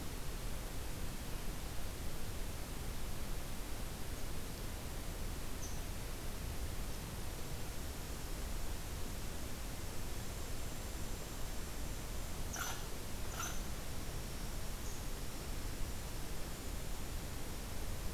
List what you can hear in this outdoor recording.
Red Squirrel